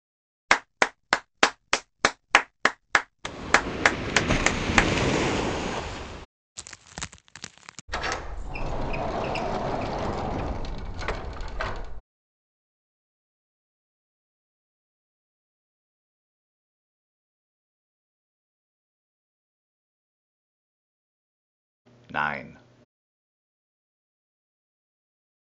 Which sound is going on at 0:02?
clapping